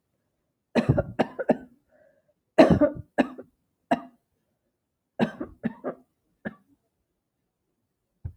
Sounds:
Cough